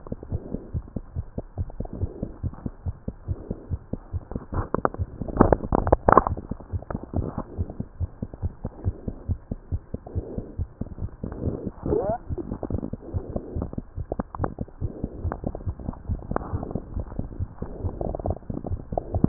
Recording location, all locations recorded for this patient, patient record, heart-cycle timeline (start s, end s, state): tricuspid valve (TV)
aortic valve (AV)+pulmonary valve (PV)+tricuspid valve (TV)+mitral valve (MV)
#Age: Child
#Sex: Male
#Height: 92.0 cm
#Weight: 15.6 kg
#Pregnancy status: False
#Murmur: Absent
#Murmur locations: nan
#Most audible location: nan
#Systolic murmur timing: nan
#Systolic murmur shape: nan
#Systolic murmur grading: nan
#Systolic murmur pitch: nan
#Systolic murmur quality: nan
#Diastolic murmur timing: nan
#Diastolic murmur shape: nan
#Diastolic murmur grading: nan
#Diastolic murmur pitch: nan
#Diastolic murmur quality: nan
#Outcome: Abnormal
#Campaign: 2015 screening campaign
0.00	0.09	unannotated
0.09	0.27	diastole
0.27	0.37	S1
0.37	0.49	systole
0.49	0.57	S2
0.57	0.71	diastole
0.71	0.79	S1
0.79	0.90	systole
0.90	0.96	S2
0.96	1.11	diastole
1.11	1.21	S1
1.21	1.33	systole
1.33	1.39	S2
1.39	1.53	diastole
1.53	1.63	S1
1.63	1.74	systole
1.74	1.79	S2
1.79	1.97	diastole
1.97	2.05	S1
2.05	2.17	systole
2.17	2.23	S2
2.23	2.39	diastole
2.39	2.49	S1
2.49	2.60	systole
2.60	2.65	S2
2.65	2.81	diastole
2.81	2.91	S1
2.91	3.02	systole
3.02	3.08	S2
3.08	3.23	diastole
3.23	3.33	S1
3.33	3.45	systole
3.45	3.50	S2
3.50	3.67	diastole
3.67	3.75	S1
3.75	3.87	systole
3.87	3.92	S2
3.92	4.09	diastole
4.09	4.19	S1
4.19	4.29	systole
4.29	4.37	S2
4.37	4.49	diastole
4.49	4.59	S1
4.59	4.71	systole
4.71	4.77	S2
4.77	4.95	diastole
4.95	5.03	S1
5.03	5.15	systole
5.15	5.22	S2
5.22	5.31	diastole
5.31	6.69	unannotated
6.69	6.77	S1
6.77	6.91	systole
6.91	6.95	S2
6.95	7.11	diastole
7.11	7.23	S1
7.23	7.35	systole
7.35	7.41	S2
7.41	7.53	diastole
7.53	7.63	S1
7.63	7.75	systole
7.75	7.81	S2
7.81	7.95	diastole
7.95	8.05	S1
8.05	8.16	systole
8.16	8.22	S2
8.22	8.39	diastole
8.39	8.47	S1
8.47	8.59	systole
8.59	8.65	S2
8.65	8.81	diastole
8.81	8.91	S1
8.91	9.03	systole
9.03	9.09	S2
9.09	9.25	diastole
9.25	9.35	S1
9.35	9.45	systole
9.45	9.53	S2
9.53	9.66	diastole
9.66	9.75	S1
9.75	9.89	systole
9.89	9.95	S2
9.95	10.11	diastole
10.11	10.21	S1
10.21	10.33	systole
10.33	10.41	S2
10.41	10.53	diastole
10.53	10.61	S1
10.61	10.75	systole
10.75	10.79	S2
10.79	10.90	diastole
10.90	19.28	unannotated